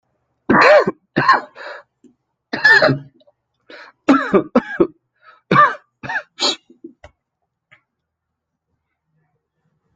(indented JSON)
{
  "expert_labels": [
    {
      "quality": "good",
      "cough_type": "dry",
      "dyspnea": false,
      "wheezing": true,
      "stridor": false,
      "choking": false,
      "congestion": true,
      "nothing": false,
      "diagnosis": "upper respiratory tract infection",
      "severity": "mild"
    }
  ],
  "age": 25,
  "gender": "male",
  "respiratory_condition": true,
  "fever_muscle_pain": false,
  "status": "healthy"
}